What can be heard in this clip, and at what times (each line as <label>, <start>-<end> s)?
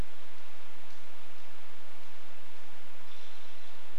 unidentified bird chip note, 0-2 s
American Robin call, 2-4 s